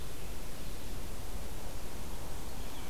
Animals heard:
forest ambience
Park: Marsh-Billings-Rockefeller National Historical Park